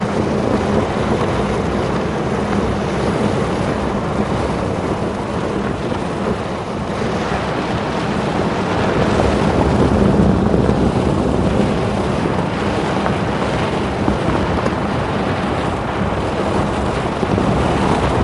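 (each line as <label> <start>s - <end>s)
A loud, erratic humming sound of a car driving. 0.0s - 18.2s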